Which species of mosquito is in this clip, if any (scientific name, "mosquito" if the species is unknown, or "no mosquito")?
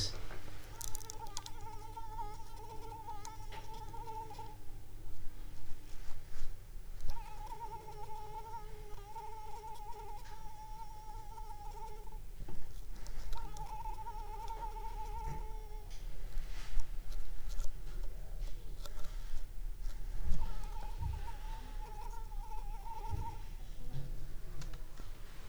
Anopheles squamosus